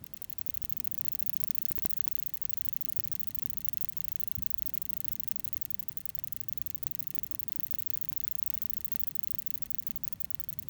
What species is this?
Odontura glabricauda